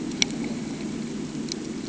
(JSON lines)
{"label": "ambient", "recorder": "HydroMoth"}